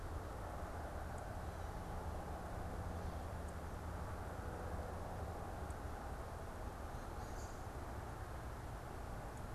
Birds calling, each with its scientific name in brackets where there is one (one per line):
American Robin (Turdus migratorius)